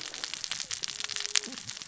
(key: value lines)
label: biophony, cascading saw
recorder: SoundTrap 600 or HydroMoth